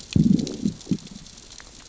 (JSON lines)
{"label": "biophony, growl", "recorder": "SoundTrap 600 or HydroMoth"}